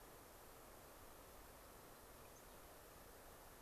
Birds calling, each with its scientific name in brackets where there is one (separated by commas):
Mountain Chickadee (Poecile gambeli), White-crowned Sparrow (Zonotrichia leucophrys)